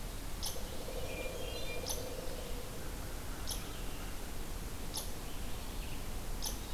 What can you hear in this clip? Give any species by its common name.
Red-eyed Vireo, unknown mammal, Pileated Woodpecker, Hermit Thrush